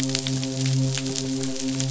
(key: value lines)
label: biophony, midshipman
recorder: SoundTrap 500